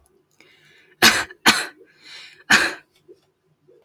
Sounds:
Cough